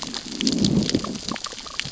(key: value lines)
label: biophony, growl
recorder: SoundTrap 600 or HydroMoth